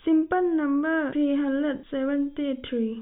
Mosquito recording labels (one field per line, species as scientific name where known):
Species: no mosquito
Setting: cup